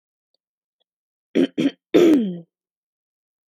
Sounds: Throat clearing